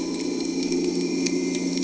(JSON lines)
{"label": "anthrophony, boat engine", "recorder": "HydroMoth"}